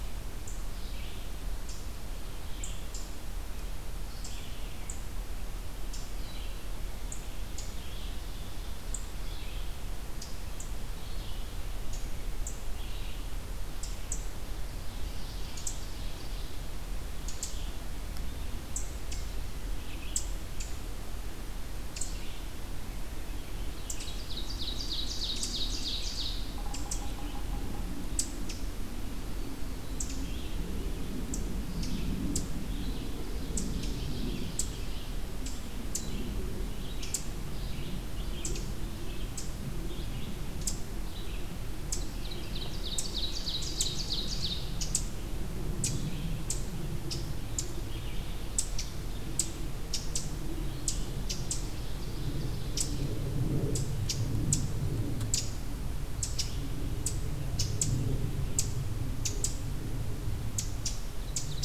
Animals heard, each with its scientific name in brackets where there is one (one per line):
Ovenbird (Seiurus aurocapilla)
Red-eyed Vireo (Vireo olivaceus)
Yellow-bellied Sapsucker (Sphyrapicus varius)